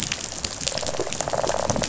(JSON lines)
{"label": "biophony, rattle response", "recorder": "SoundTrap 500"}